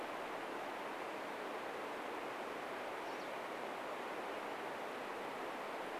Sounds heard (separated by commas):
Pine Siskin call